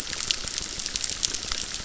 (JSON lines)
{"label": "biophony, crackle", "recorder": "SoundTrap 600"}